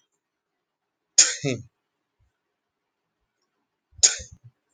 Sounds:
Sneeze